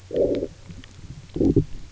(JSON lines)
{"label": "biophony, low growl", "recorder": "SoundTrap 300"}